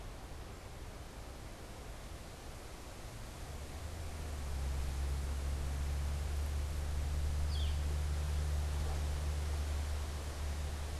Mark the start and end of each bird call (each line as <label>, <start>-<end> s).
Northern Flicker (Colaptes auratus), 7.3-8.0 s